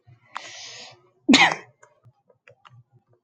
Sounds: Sneeze